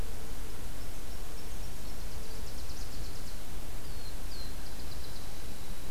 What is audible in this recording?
Nashville Warbler, Black-throated Blue Warbler